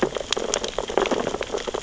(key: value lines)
label: biophony, sea urchins (Echinidae)
recorder: SoundTrap 600 or HydroMoth